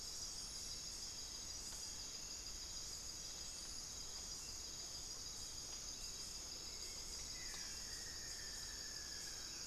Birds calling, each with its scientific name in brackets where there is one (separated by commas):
Buff-throated Woodcreeper (Xiphorhynchus guttatus)